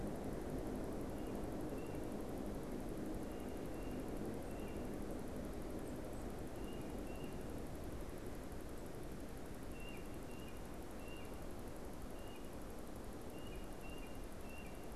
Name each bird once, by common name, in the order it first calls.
Tufted Titmouse